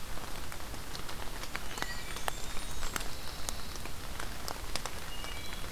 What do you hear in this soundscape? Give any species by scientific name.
Hylocichla mustelina, Contopus virens, Setophaga fusca, Setophaga pinus